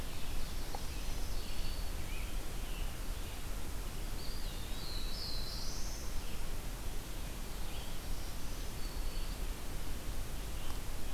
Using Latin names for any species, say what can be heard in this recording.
Seiurus aurocapilla, Piranga olivacea, Setophaga virens, Contopus virens, Setophaga caerulescens